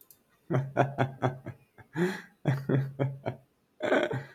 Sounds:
Laughter